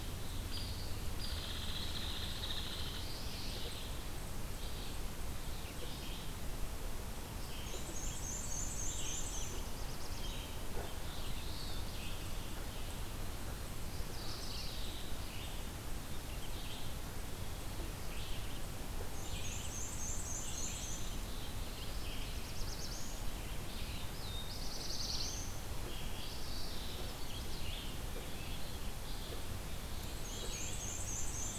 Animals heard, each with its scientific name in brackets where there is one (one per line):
Black-and-white Warbler (Mniotilta varia)
Chestnut-sided Warbler (Setophaga pensylvanica)
Mourning Warbler (Geothlypis philadelphia)
Hairy Woodpecker (Dryobates villosus)
Red-eyed Vireo (Vireo olivaceus)
Black-throated Blue Warbler (Setophaga caerulescens)